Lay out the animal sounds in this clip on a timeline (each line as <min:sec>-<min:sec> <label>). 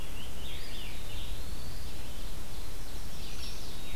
0:00.0-0:01.9 Scarlet Tanager (Piranga olivacea)
0:00.0-0:04.0 Red-eyed Vireo (Vireo olivaceus)
0:00.4-0:02.0 Eastern Wood-Pewee (Contopus virens)
0:01.7-0:03.9 Ovenbird (Seiurus aurocapilla)
0:03.3-0:03.6 Hairy Woodpecker (Dryobates villosus)